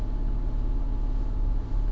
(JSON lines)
{"label": "anthrophony, boat engine", "recorder": "SoundTrap 300"}